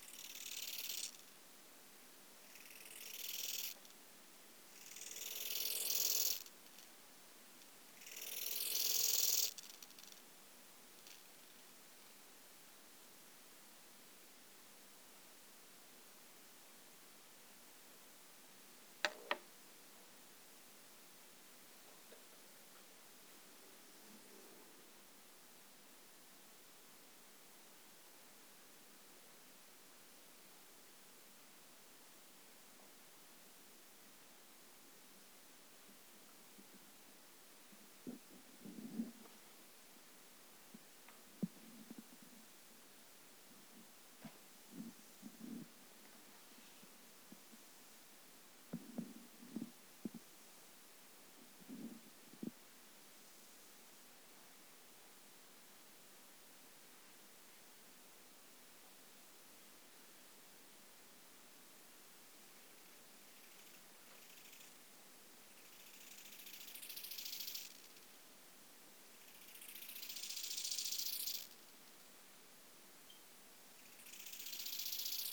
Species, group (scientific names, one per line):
Chorthippus eisentrauti
Orthoptera